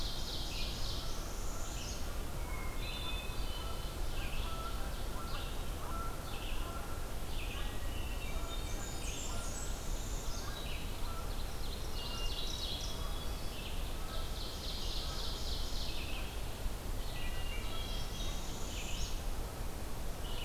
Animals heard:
Hermit Thrush (Catharus guttatus), Ovenbird (Seiurus aurocapilla), Canada Goose (Branta canadensis), Blackburnian Warbler (Setophaga fusca), Red-eyed Vireo (Vireo olivaceus), Northern Parula (Setophaga americana)

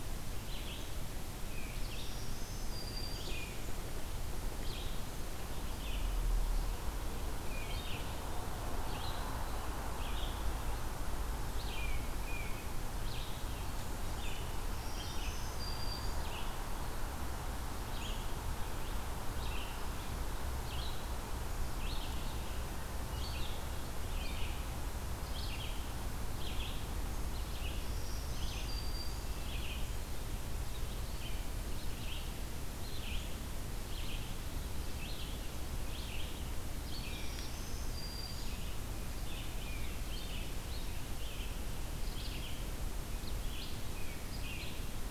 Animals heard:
Black-throated Green Warbler (Setophaga virens), Red-eyed Vireo (Vireo olivaceus), Tufted Titmouse (Baeolophus bicolor)

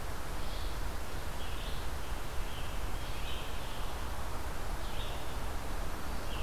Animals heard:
Scarlet Tanager (Piranga olivacea), Red-eyed Vireo (Vireo olivaceus)

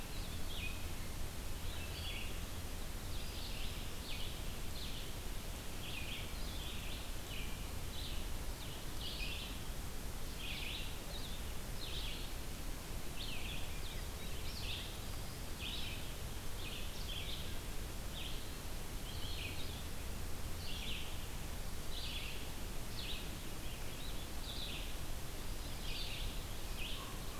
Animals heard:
Blue-headed Vireo (Vireo solitarius), American Crow (Corvus brachyrhynchos), Red-eyed Vireo (Vireo olivaceus)

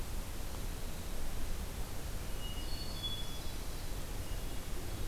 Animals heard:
Hermit Thrush (Catharus guttatus)

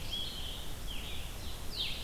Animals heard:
Blue-headed Vireo (Vireo solitarius)

